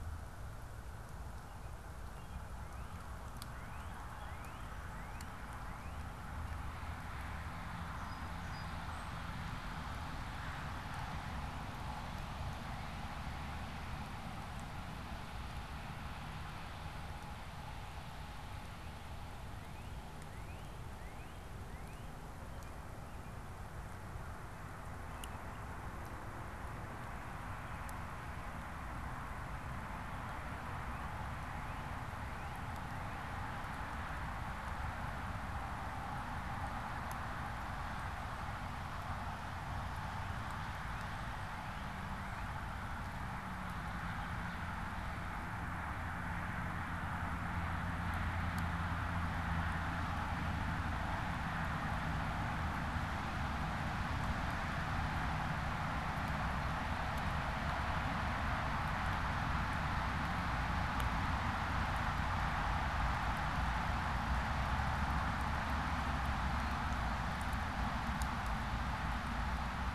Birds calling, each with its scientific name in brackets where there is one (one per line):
Song Sparrow (Melospiza melodia)
American Robin (Turdus migratorius)
Northern Cardinal (Cardinalis cardinalis)